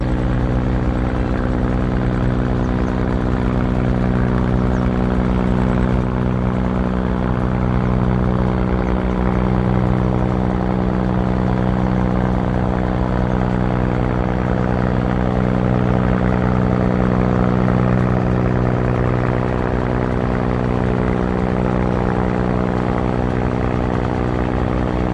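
A small airplane engine running loudly and continuously. 0.0 - 25.1
Boat engine running continuously. 0.0 - 25.1

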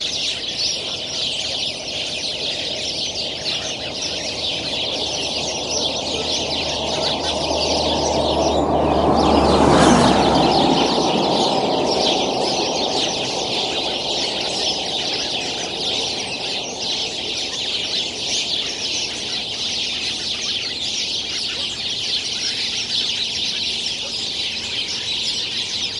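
Many birds sing repeatedly with some background noise. 0.0 - 26.0
A vehicle drives by quickly, with the sound increasing rapidly and then fading. 8.2 - 11.7

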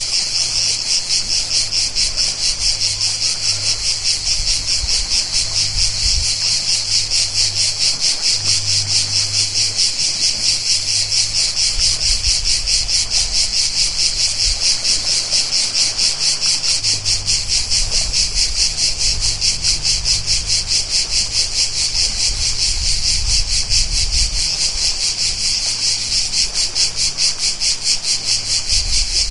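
Cicadas hum while gentle waves lap at the seaside, creating a warm, rhythmic summer backdrop. 0.0 - 29.3

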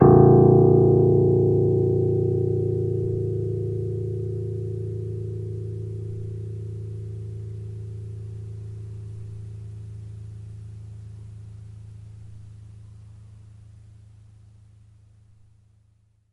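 A very low piano note plays and slowly fades. 0.0 - 14.7

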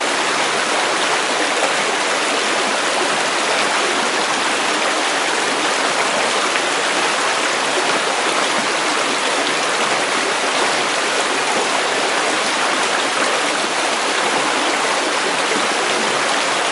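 A shallow stream gently running. 0.0 - 16.7

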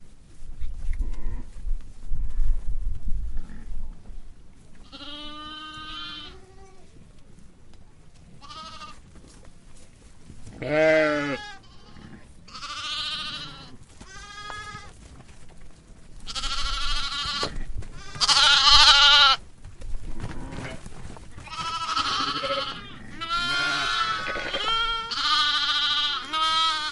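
A herd of sheep bleating while moving on grass. 0.4 - 4.3
Multiple sheep bleat one after another. 4.7 - 7.4
A sheep bleats softly. 8.4 - 9.1
A herd of sheep bleating, with some close and others faint in the distance. 10.5 - 15.2
Multiple sheep bleating, with some sounds loud and close and others faint and distant. 16.1 - 26.9

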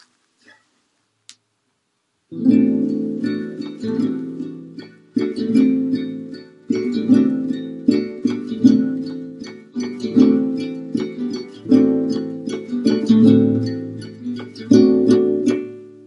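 The noisy sound of hands touching nylon guitar strings in the distance. 0.0 - 2.2
A guitar plays a repeating melody. 2.3 - 16.1

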